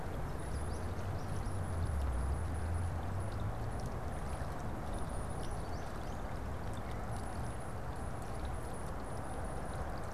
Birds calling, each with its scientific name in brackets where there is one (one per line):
American Goldfinch (Spinus tristis)
Tufted Titmouse (Baeolophus bicolor)